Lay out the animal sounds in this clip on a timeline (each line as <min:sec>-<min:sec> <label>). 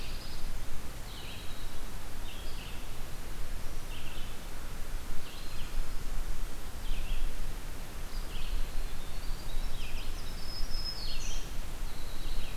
0:00.0-0:00.5 Pine Warbler (Setophaga pinus)
0:00.0-0:01.8 Winter Wren (Troglodytes hiemalis)
0:00.0-0:12.6 Red-eyed Vireo (Vireo olivaceus)
0:09.0-0:12.6 Winter Wren (Troglodytes hiemalis)
0:10.1-0:11.4 Black-throated Green Warbler (Setophaga virens)